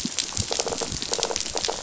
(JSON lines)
{"label": "biophony", "recorder": "SoundTrap 500"}